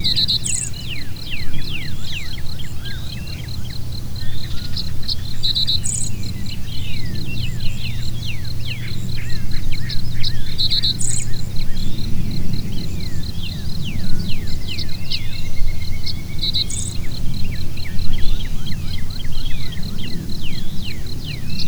Is a jackhammer making noise in the background?
no